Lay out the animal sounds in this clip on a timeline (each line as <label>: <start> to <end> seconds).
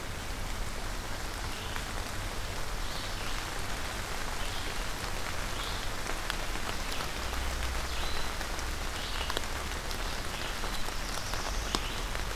Red-eyed Vireo (Vireo olivaceus): 0.0 to 3.3 seconds
Red-eyed Vireo (Vireo olivaceus): 5.4 to 12.4 seconds
Black-throated Blue Warbler (Setophaga caerulescens): 10.3 to 11.9 seconds